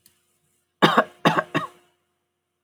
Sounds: Cough